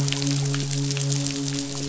{"label": "biophony, midshipman", "recorder": "SoundTrap 500"}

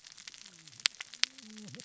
{"label": "biophony, cascading saw", "recorder": "SoundTrap 600 or HydroMoth"}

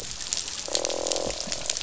{"label": "biophony, croak", "recorder": "SoundTrap 500"}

